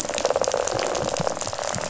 {"label": "biophony, rattle", "recorder": "SoundTrap 500"}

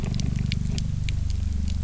{"label": "anthrophony, boat engine", "recorder": "SoundTrap 300"}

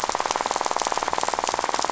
{"label": "biophony, rattle", "recorder": "SoundTrap 500"}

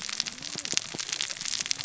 {"label": "biophony, cascading saw", "recorder": "SoundTrap 600 or HydroMoth"}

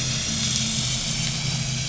{"label": "anthrophony, boat engine", "recorder": "SoundTrap 500"}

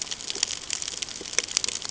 {"label": "ambient", "recorder": "HydroMoth"}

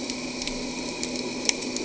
{"label": "anthrophony, boat engine", "recorder": "HydroMoth"}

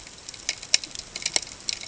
{"label": "ambient", "recorder": "HydroMoth"}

